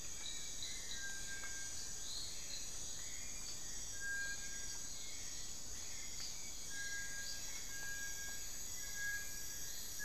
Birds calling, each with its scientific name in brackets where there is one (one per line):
Black-billed Thrush (Turdus ignobilis)
Long-billed Woodcreeper (Nasica longirostris)
Little Tinamou (Crypturellus soui)